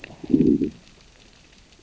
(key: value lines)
label: biophony, growl
recorder: SoundTrap 600 or HydroMoth